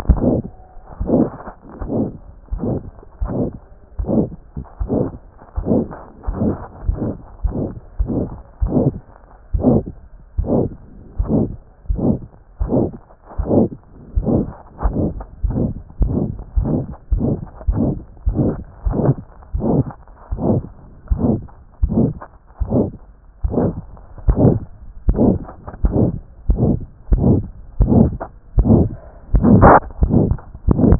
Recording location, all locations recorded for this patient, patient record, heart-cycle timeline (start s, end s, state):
mitral valve (MV)
aortic valve (AV)+pulmonary valve (PV)+tricuspid valve (TV)+mitral valve (MV)
#Age: Child
#Sex: Female
#Height: 136.0 cm
#Weight: 26.3 kg
#Pregnancy status: False
#Murmur: Present
#Murmur locations: aortic valve (AV)+mitral valve (MV)+pulmonary valve (PV)+tricuspid valve (TV)
#Most audible location: mitral valve (MV)
#Systolic murmur timing: Mid-systolic
#Systolic murmur shape: Diamond
#Systolic murmur grading: III/VI or higher
#Systolic murmur pitch: High
#Systolic murmur quality: Harsh
#Diastolic murmur timing: nan
#Diastolic murmur shape: nan
#Diastolic murmur grading: nan
#Diastolic murmur pitch: nan
#Diastolic murmur quality: nan
#Outcome: Abnormal
#Campaign: 2014 screening campaign
0.00	3.22	unannotated
3.22	3.30	S1
3.30	3.43	systole
3.43	3.49	S2
3.49	3.99	diastole
3.99	4.04	S1
4.04	4.19	systole
4.19	4.26	S2
4.26	4.81	diastole
4.81	4.86	S1
4.86	5.01	systole
5.01	5.08	S2
5.08	5.56	diastole
5.56	5.62	S1
5.62	5.80	systole
5.80	5.86	S2
5.86	6.28	diastole
6.28	6.34	S1
6.34	6.48	systole
6.48	6.55	S2
6.55	6.88	diastole
6.88	6.95	S1
6.95	7.09	systole
7.09	7.16	S2
7.16	7.44	diastole
7.44	7.51	S1
7.51	7.65	systole
7.65	7.71	S2
7.71	8.00	diastole
8.00	8.08	S1
8.08	8.20	systole
8.20	8.28	S2
8.28	8.62	diastole
8.62	8.70	S1
8.70	8.86	systole
8.86	8.94	S2
8.94	9.54	diastole
9.54	30.99	unannotated